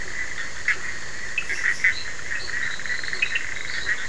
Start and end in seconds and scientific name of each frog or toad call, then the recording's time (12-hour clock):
0.0	1.4	Elachistocleis bicolor
0.0	3.6	Sphaenorhynchus surdus
2.0	4.0	Boana leptolineata
11:30pm